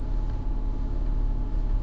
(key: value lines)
label: anthrophony, boat engine
recorder: SoundTrap 300